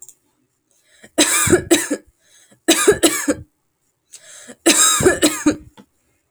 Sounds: Cough